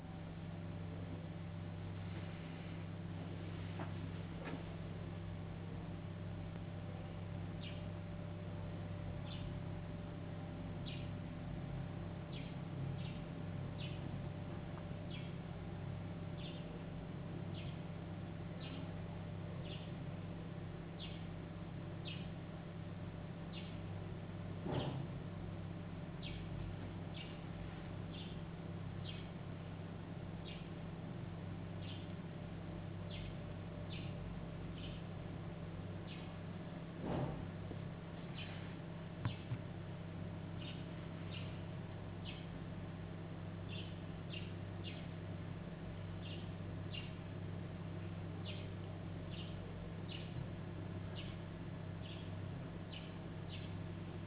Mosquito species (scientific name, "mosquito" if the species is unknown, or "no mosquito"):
no mosquito